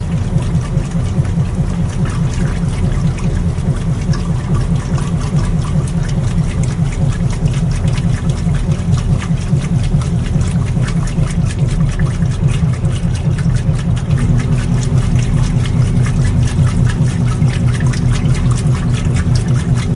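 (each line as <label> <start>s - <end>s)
A washing machine makes a rhythmic noise. 0.0s - 19.9s
Water splashes rhythmically. 0.4s - 19.9s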